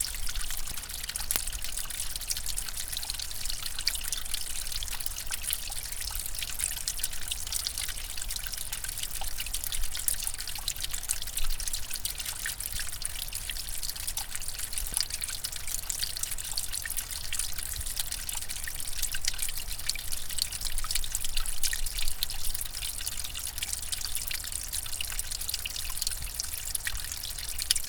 Is it liquid in motion?
yes